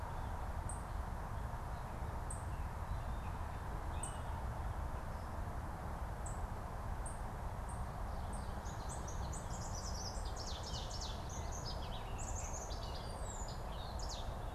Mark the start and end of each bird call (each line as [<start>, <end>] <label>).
[0.56, 14.46] Ovenbird (Seiurus aurocapilla)
[2.36, 4.26] Gray Catbird (Dumetella carolinensis)